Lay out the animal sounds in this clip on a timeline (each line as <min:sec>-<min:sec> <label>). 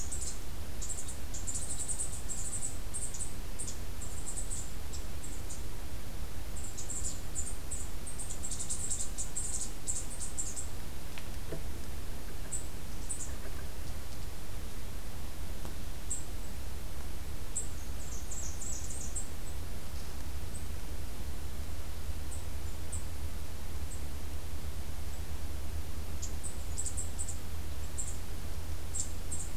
0:17.9-0:19.1 Blackburnian Warbler (Setophaga fusca)